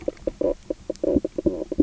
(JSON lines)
{"label": "biophony, knock croak", "recorder": "SoundTrap 300"}